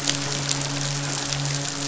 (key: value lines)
label: biophony, midshipman
recorder: SoundTrap 500